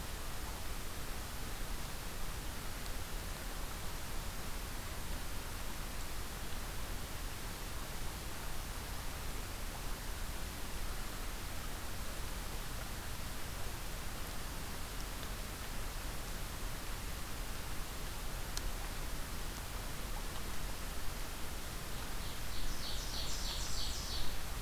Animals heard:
Golden-crowned Kinglet (Regulus satrapa), Ovenbird (Seiurus aurocapilla)

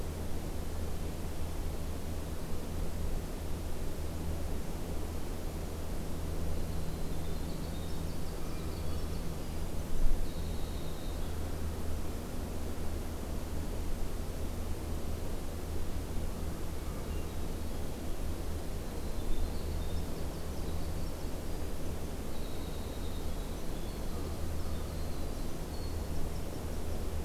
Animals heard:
Hermit Thrush (Catharus guttatus), American Crow (Corvus brachyrhynchos), Winter Wren (Troglodytes hiemalis)

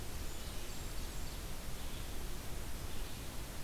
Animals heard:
Red-eyed Vireo (Vireo olivaceus), Blackburnian Warbler (Setophaga fusca)

